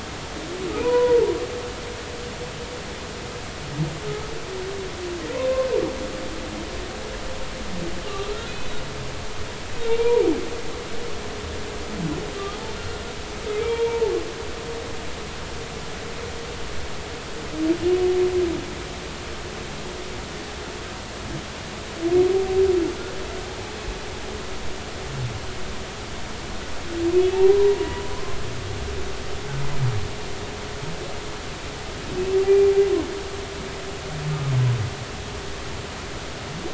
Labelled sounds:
0.8	1.3	humpback whale, 0.83 to 1.1 kHz
5.3	5.7	humpback whale, 0.90 to 1.1 kHz
8.1	8.7	humpback whale, 1.1 to 2.6 kHz
9.9	10.2	humpback whale, 0.86 to 2.5 kHz
13.6	14.1	humpback whale, 0.83 to 3.3 kHz
27.3	28.4	humpback whale, 0.80 to 2.8 kHz

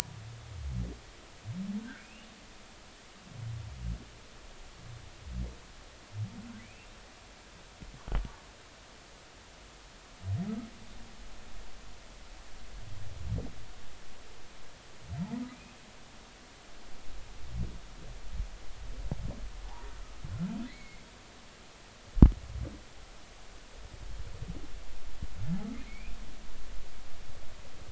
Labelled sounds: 3.0	3.3	humpback whale, 2.4 to 2.9 kHz
6.6	6.9	humpback whale, 2.1 to 2.8 kHz
15.5	15.8	humpback whale, 2.3 to 2.7 kHz
20.7	21.0	humpback whale, 1.8 to 2.3 kHz
25.9	26.2	humpback whale, 2.1 to 2.7 kHz

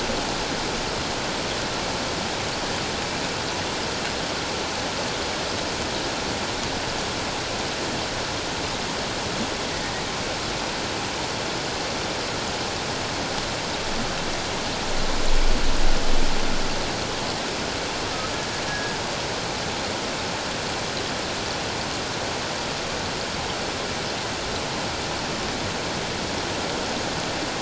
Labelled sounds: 18.7	18.9	humpback whale, 1.6 to 1.7 kHz

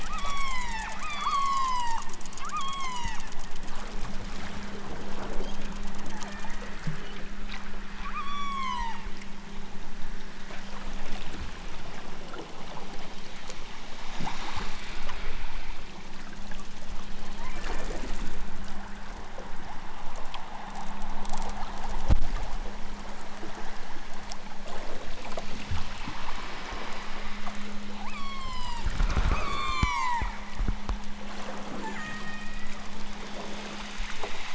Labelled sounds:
0.0	3.3	killer whale, southern Alaska resident, 0.46 to 8.0 kHz
5.3	5.7	killer whale, southern Alaska resident, 1.6 to 5.0 kHz
6.1	6.8	killer whale, southern Alaska resident, 0.41 to 4.7 kHz
8.0	9.1	killer whale, southern Alaska resident, 0.60 to 8.0 kHz
17.3	17.7	killer whale, southern Alaska resident, 0.51 to 2.8 kHz
27.9	28.9	killer whale, southern Alaska resident, 0.46 to 8.0 kHz
29.3	30.2	killer whale, southern Alaska resident, 0.64 to 8.0 kHz
31.7	32.8	killer whale, southern Alaska resident, 0.41 to 3.1 kHz

